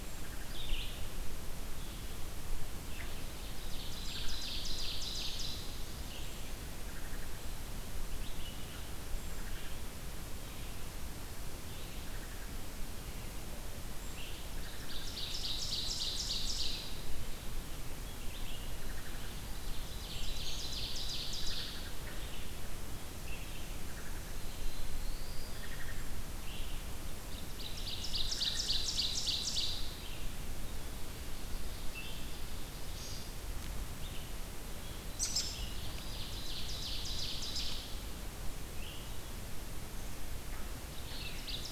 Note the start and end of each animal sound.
0.0s-14.3s: Brown Creeper (Certhia americana)
0.0s-41.7s: Red-eyed Vireo (Vireo olivaceus)
0.1s-0.8s: Wood Thrush (Hylocichla mustelina)
3.1s-5.8s: Ovenbird (Seiurus aurocapilla)
4.0s-4.5s: Wood Thrush (Hylocichla mustelina)
6.8s-7.5s: Wood Thrush (Hylocichla mustelina)
9.2s-9.8s: Wood Thrush (Hylocichla mustelina)
12.0s-12.6s: Wood Thrush (Hylocichla mustelina)
14.4s-17.1s: Ovenbird (Seiurus aurocapilla)
18.8s-19.3s: Wood Thrush (Hylocichla mustelina)
19.5s-22.1s: Ovenbird (Seiurus aurocapilla)
21.3s-22.3s: Wood Thrush (Hylocichla mustelina)
23.7s-24.4s: Wood Thrush (Hylocichla mustelina)
24.2s-25.8s: Black-throated Blue Warbler (Setophaga caerulescens)
25.5s-26.2s: Wood Thrush (Hylocichla mustelina)
27.2s-30.0s: Ovenbird (Seiurus aurocapilla)
28.3s-28.8s: Wood Thrush (Hylocichla mustelina)
31.0s-33.0s: Ovenbird (Seiurus aurocapilla)
35.0s-35.7s: American Robin (Turdus migratorius)
35.7s-38.1s: Ovenbird (Seiurus aurocapilla)
41.2s-41.7s: Ovenbird (Seiurus aurocapilla)

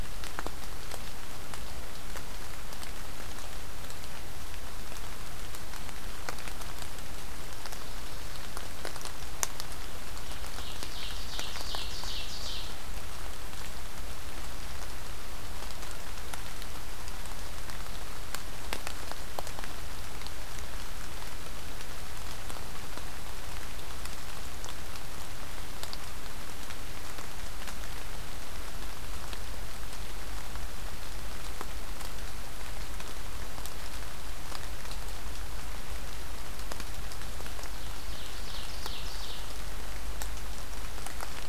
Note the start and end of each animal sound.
10.3s-12.8s: Ovenbird (Seiurus aurocapilla)
37.4s-39.7s: Ovenbird (Seiurus aurocapilla)

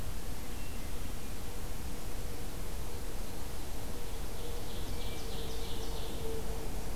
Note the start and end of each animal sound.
0.2s-1.4s: Hermit Thrush (Catharus guttatus)
3.9s-6.3s: Ovenbird (Seiurus aurocapilla)
4.8s-5.8s: Hermit Thrush (Catharus guttatus)

